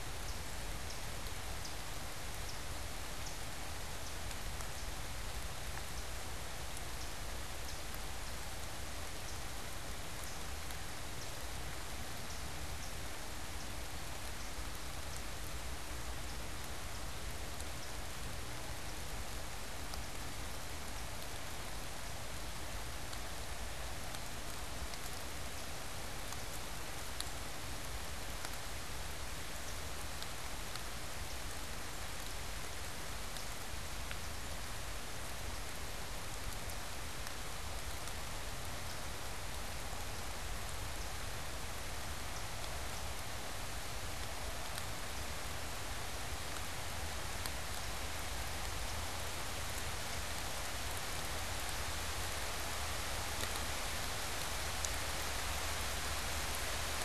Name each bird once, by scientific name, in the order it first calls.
unidentified bird